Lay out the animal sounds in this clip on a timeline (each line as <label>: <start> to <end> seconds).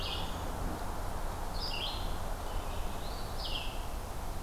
Red-eyed Vireo (Vireo olivaceus): 0.0 to 4.4 seconds
Eastern Phoebe (Sayornis phoebe): 3.0 to 3.6 seconds